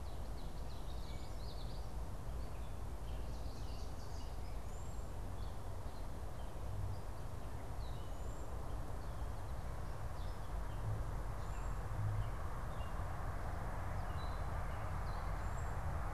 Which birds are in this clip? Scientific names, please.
Geothlypis trichas, Setophaga petechia, Bombycilla cedrorum, Dumetella carolinensis